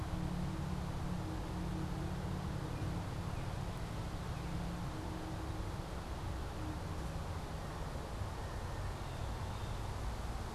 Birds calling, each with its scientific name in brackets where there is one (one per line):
Blue Jay (Cyanocitta cristata)